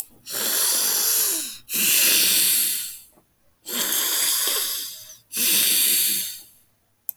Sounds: Sneeze